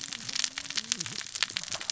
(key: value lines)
label: biophony, cascading saw
recorder: SoundTrap 600 or HydroMoth